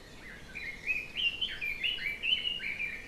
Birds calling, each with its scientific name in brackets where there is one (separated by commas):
Red-billed Leiothrix (Leiothrix lutea)